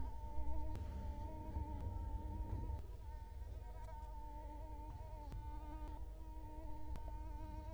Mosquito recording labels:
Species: Culex quinquefasciatus; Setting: cup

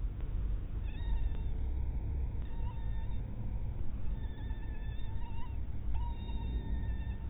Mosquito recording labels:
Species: mosquito; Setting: cup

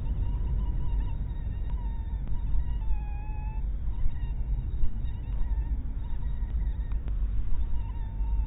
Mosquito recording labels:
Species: mosquito; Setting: cup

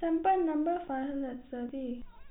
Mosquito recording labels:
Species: no mosquito; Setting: cup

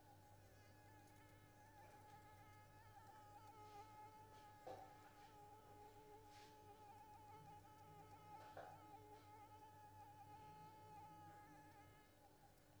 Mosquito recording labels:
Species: Anopheles squamosus; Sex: female; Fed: unfed; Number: one; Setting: cup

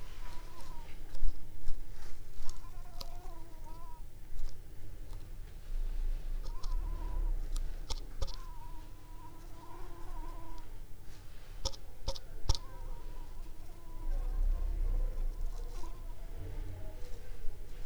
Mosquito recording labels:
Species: Anopheles coustani; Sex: female; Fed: unfed; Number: one; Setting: cup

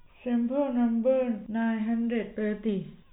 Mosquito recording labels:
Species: no mosquito; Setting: cup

